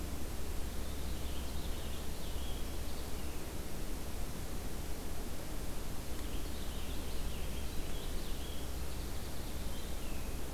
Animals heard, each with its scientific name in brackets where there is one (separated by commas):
Purple Finch (Haemorhous purpureus)